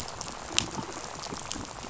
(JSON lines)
{"label": "biophony, rattle", "recorder": "SoundTrap 500"}